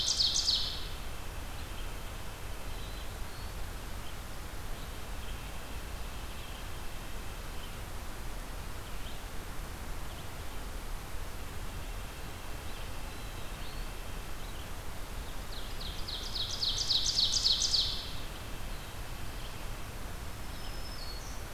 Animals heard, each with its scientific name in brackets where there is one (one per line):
Red-eyed Vireo (Vireo olivaceus)
Ovenbird (Seiurus aurocapilla)
Black-throated Green Warbler (Setophaga virens)
White-breasted Nuthatch (Sitta carolinensis)
Black-throated Blue Warbler (Setophaga caerulescens)